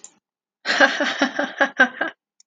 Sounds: Laughter